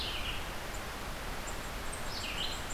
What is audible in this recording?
Red-eyed Vireo